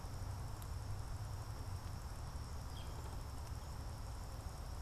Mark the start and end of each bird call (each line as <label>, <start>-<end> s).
Northern Flicker (Colaptes auratus), 2.5-3.2 s